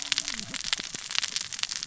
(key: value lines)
label: biophony, cascading saw
recorder: SoundTrap 600 or HydroMoth